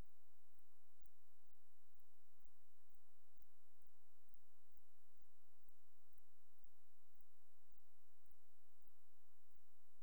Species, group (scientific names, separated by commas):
Antaxius spinibrachius, Orthoptera